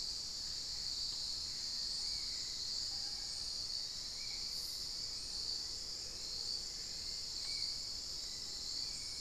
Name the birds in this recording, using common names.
Spot-winged Antshrike, unidentified bird, Black-faced Antthrush, Plain-throated Antwren, Hauxwell's Thrush